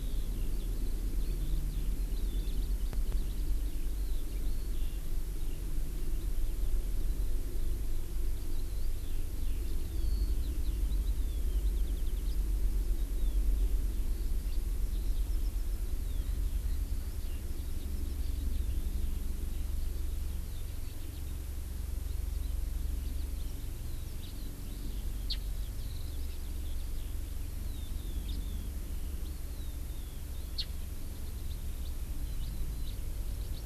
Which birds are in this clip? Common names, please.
Eurasian Skylark, Japanese Bush Warbler, House Finch